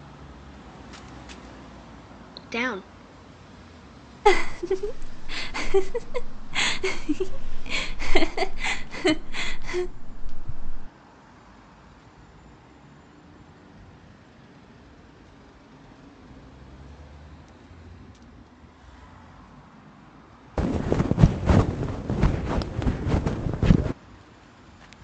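At 2.35 seconds, a voice says "Down." Then at 4.25 seconds, someone giggles. Later, at 20.55 seconds, wind can be heard.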